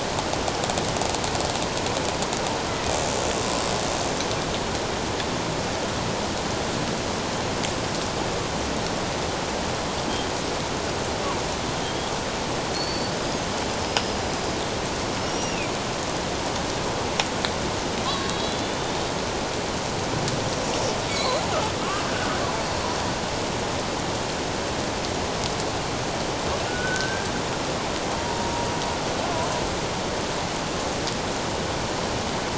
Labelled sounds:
11.8	13.1	killer whale, Bigg's (transient), 3.1 to 4.6 kHz
13.8	14.2	killer whale, Bigg's (transient), 5.0 to 5.2 kHz
15.2	15.7	killer whale, Bigg's (transient), 2.3 to 5.8 kHz
18.1	19.0	killer whale, Bigg's (transient), 0.97 to 4.0 kHz
21.2	21.4	killer whale, Bigg's (transient), 3.9 to 4.1 kHz
22.1	22.4	killer whale, Bigg's (transient), 1.4 to 1.6 kHz
26.7	27.3	killer whale, Bigg's (transient), 1.4 to 1.7 kHz
28.2	28.5	killer whale, Bigg's (transient), 0.91 to 1.0 kHz

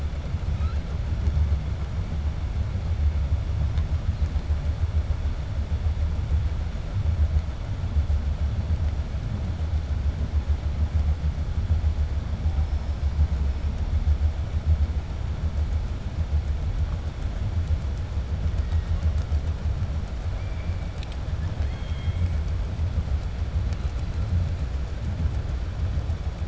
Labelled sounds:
21.3	22.3	killer whale, 0.95 to 4.3 kHz

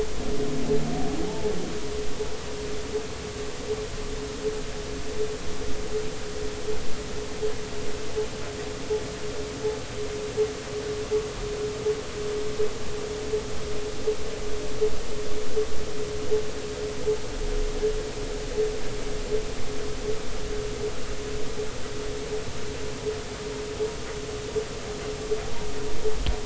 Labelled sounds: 1.2	1.5	humpback whale, 0.80 to 0.93 kHz

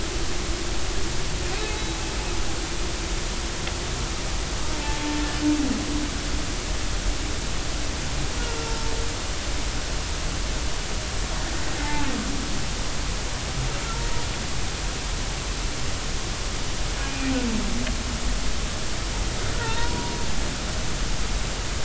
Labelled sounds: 8.6	8.9	humpback whale, 0.86 to 1.4 kHz
11.8	12.1	humpback whale, 0.80 to 2.1 kHz
17.0	17.4	humpback whale, 2.3 to 2.5 kHz
19.6	20.2	humpback whale, 0.90 to 2.0 kHz

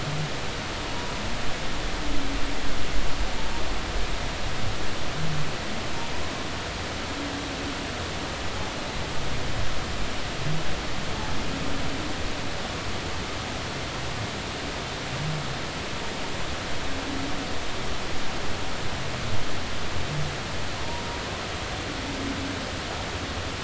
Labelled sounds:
0.9	1.2	humpback whale, 0.93 to 1.0 kHz

